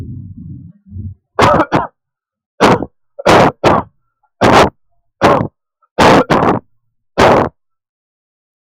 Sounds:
Cough